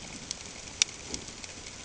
{"label": "ambient", "recorder": "HydroMoth"}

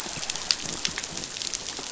{"label": "biophony", "recorder": "SoundTrap 500"}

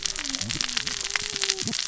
{"label": "biophony, cascading saw", "recorder": "SoundTrap 600 or HydroMoth"}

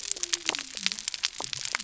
{"label": "biophony", "recorder": "SoundTrap 300"}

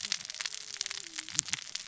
{"label": "biophony, cascading saw", "recorder": "SoundTrap 600 or HydroMoth"}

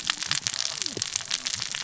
{"label": "biophony, cascading saw", "recorder": "SoundTrap 600 or HydroMoth"}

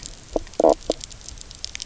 {"label": "biophony, knock croak", "recorder": "SoundTrap 300"}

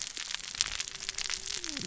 {"label": "biophony, cascading saw", "recorder": "SoundTrap 600 or HydroMoth"}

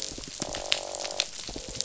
{"label": "biophony, croak", "recorder": "SoundTrap 500"}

